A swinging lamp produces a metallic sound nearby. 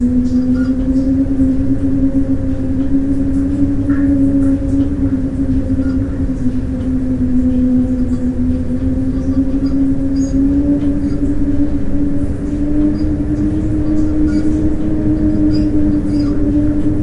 5.4s 6.5s, 9.8s 10.9s

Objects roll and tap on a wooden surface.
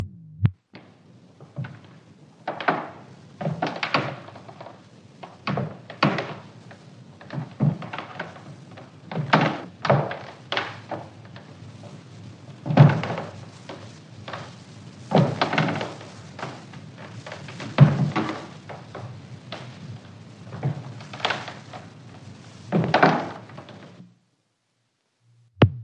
2.4s 4.6s, 5.3s 6.6s, 7.2s 8.4s, 9.1s 11.2s, 12.5s 14.1s, 14.9s 16.2s, 17.2s 18.8s, 20.5s 21.7s, 22.7s 24.1s

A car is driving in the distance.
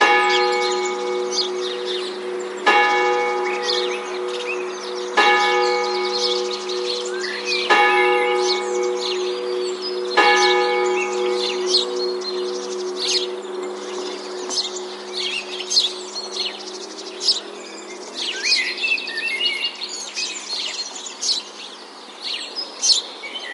18.1s 21.4s

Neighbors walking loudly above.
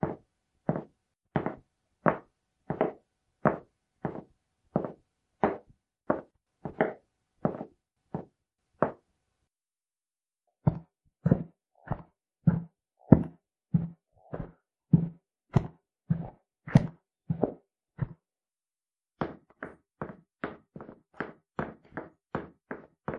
10.6s 18.2s

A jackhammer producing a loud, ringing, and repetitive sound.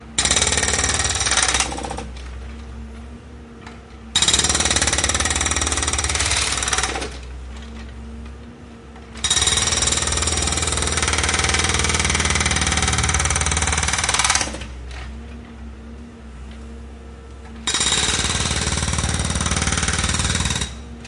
0.1s 2.5s, 4.1s 7.2s, 9.2s 14.7s, 17.6s 20.8s

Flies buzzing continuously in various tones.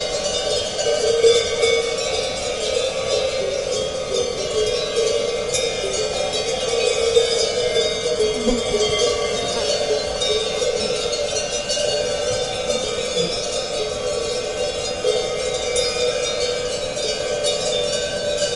8.4s 10.3s

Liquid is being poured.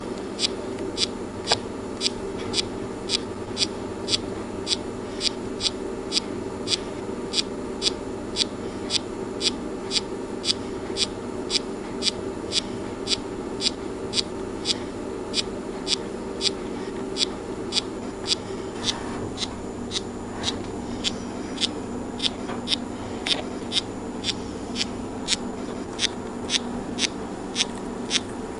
27.4s 28.6s

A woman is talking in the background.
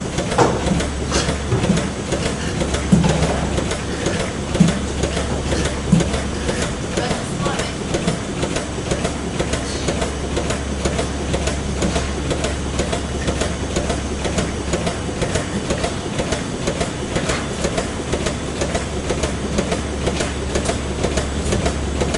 7.1s 7.8s

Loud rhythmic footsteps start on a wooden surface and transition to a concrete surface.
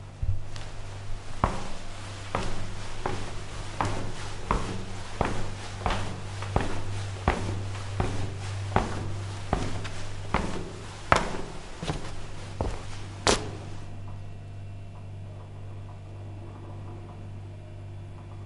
1.3s 14.4s

